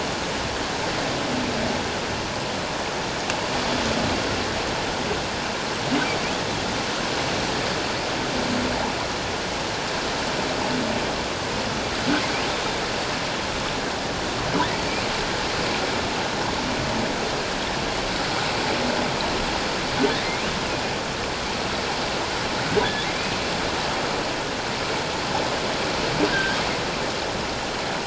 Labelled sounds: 26.3	26.6	humpback whale, 1.5 to 1.7 kHz

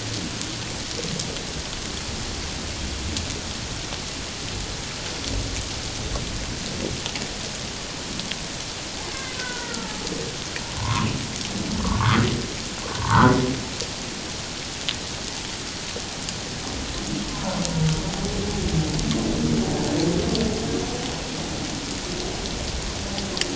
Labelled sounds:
9.1	10.0	killer whale, Bigg's (transient), 0.81 to 1.7 kHz
10.8	12.2	humpback whale, 0.84 to 1.4 kHz
12.9	13.3	humpback whale, 0.84 to 1.6 kHz
17.3	17.6	humpback whale, 0.88 to 1.1 kHz

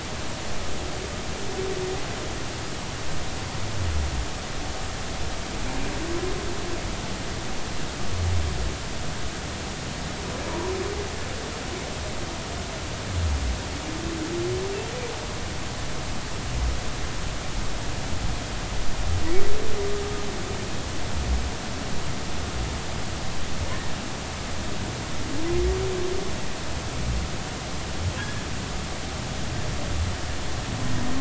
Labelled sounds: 10.5	10.7	humpback whale, 0.90 to 1.1 kHz
28.2	28.4	humpback whale, 1.6 to 1.8 kHz

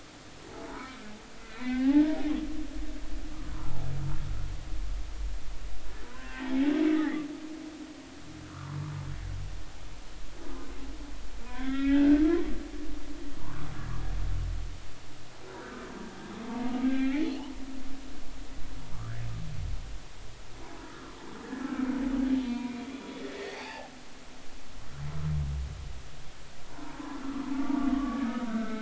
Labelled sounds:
0.5	2.2	humpback whale, 0.80 to 2.4 kHz
3.5	3.8	humpback whale, 0.80 to 1.1 kHz
6.0	6.5	humpback whale, 0.93 to 2.0 kHz
6.9	7.3	humpback whale, 1.6 to 2.1 kHz
8.4	8.8	humpback whale, 0.90 to 1.5 kHz
11.4	12.3	humpback whale, 0.93 to 3.6 kHz
13.4	13.7	humpback whale, 0.86 to 1.3 kHz
16.5	17.3	humpback whale, 0.80 to 2.5 kHz
18.9	19.2	humpback whale, 1.1 to 1.8 kHz
22.4	23.9	humpback whale, 0.80 to 4.9 kHz
27.6	28.8	humpback whale, 1.1 to 1.6 kHz

